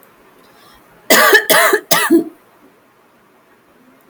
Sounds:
Cough